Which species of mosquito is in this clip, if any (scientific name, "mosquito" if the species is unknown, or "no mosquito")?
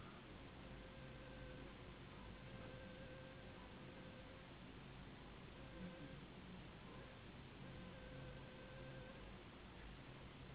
Anopheles gambiae s.s.